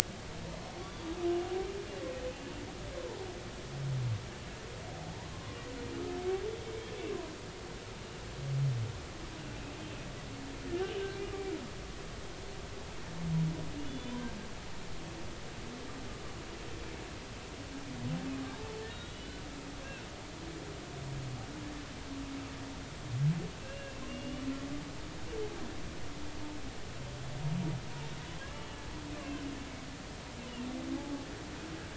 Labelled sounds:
0.8	1.1	humpback whale, 3.3 to 3.6 kHz
5.3	5.6	humpback whale, 0.99 to 1.1 kHz
9.4	9.6	humpback whale, 2.7 to 2.9 kHz
13.8	14.1	humpback whale, 2.8 to 3.5 kHz
18.9	19.4	humpback whale, 2.9 to 4.0 kHz
23.6	24.5	humpback whale, 2.6 to 3.0 kHz
28.5	28.8	humpback whale, 2.8 to 3.0 kHz
31.0	31.2	humpback whale, 0.80 to 0.90 kHz

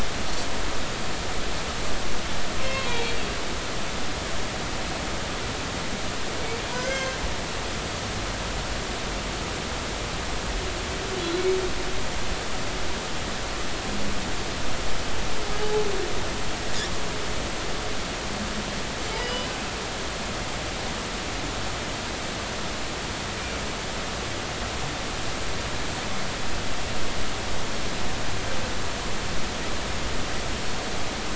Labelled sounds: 2.6	3.2	humpback whale, 0.80 to 2.8 kHz
6.7	7.2	humpback whale, 1.4 to 6.5 kHz
15.6	15.9	humpback whale, 0.80 to 0.90 kHz
19.2	19.5	humpback whale, 2.9 to 3.0 kHz

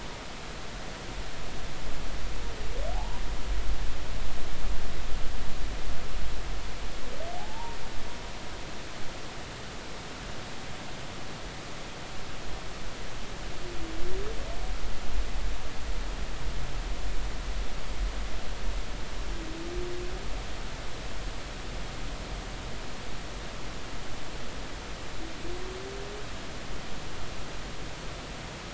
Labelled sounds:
2.9	3.2	humpback whale, 0.80 to 1.0 kHz
7.4	7.8	humpback whale, 0.80 to 0.99 kHz

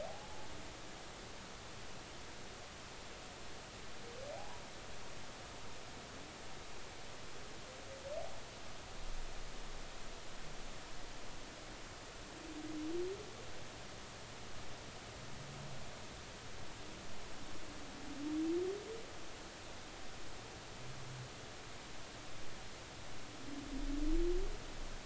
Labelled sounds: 0.0	0.5	humpback whale, 0.80 to 0.93 kHz
4.3	4.6	humpback whale, 0.80 to 1.0 kHz

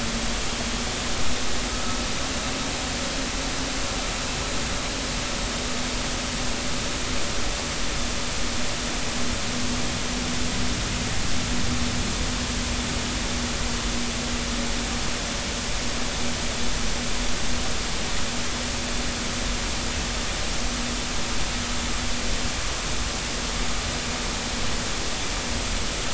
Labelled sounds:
1.7	2.0	vessel noise, 1.2 to 1.3 kHz

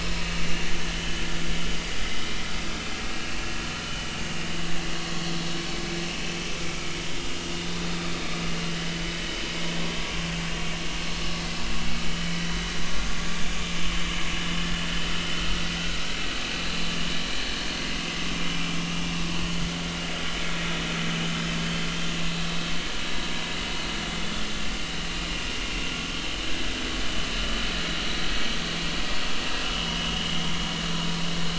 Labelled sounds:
1.0	1.2	vessel noise, 2.9 to 3.2 kHz
3.3	3.7	vessel noise, 2.7 to 2.8 kHz
15.3	15.6	vessel noise, 1.2 to 1.5 kHz
26.4	26.7	vessel noise, 1.5 to 1.8 kHz

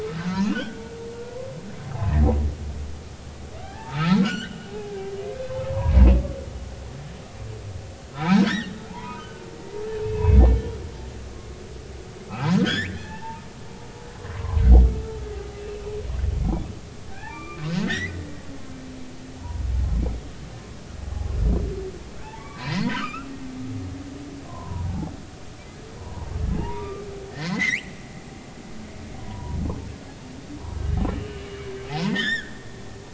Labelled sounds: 0.2	0.8	humpback whale, 1.4 to 4.4 kHz
1.9	2.1	humpback whale, 0.80 to 0.90 kHz
3.6	5.0	humpback whale, 0.80 to 3.4 kHz
5.7	6.0	humpback whale, 0.90 to 1.1 kHz
8.1	10.4	humpback whale, 0.80 to 5.8 kHz
12.3	14.6	humpback whale, 0.80 to 7.3 kHz
15.6	15.8	humpback whale, 2.5 to 2.8 kHz
17.1	18.2	humpback whale, 0.96 to 2.4 kHz
19.4	19.6	humpback whale, 0.90 to 1.0 kHz
22.2	23.3	humpback whale, 0.80 to 4.3 kHz
24.5	25.1	humpback whale, 0.80 to 1.1 kHz
26.0	27.0	humpback whale, 0.83 to 2.5 kHz
27.3	27.9	humpback whale, 1.7 to 3.2 kHz
29.2	29.6	humpback whale, 0.90 to 1.1 kHz
31.2	31.4	humpback whale, 2.8 to 2.9 kHz
32.1	32.6	humpback whale, 1.4 to 7.4 kHz

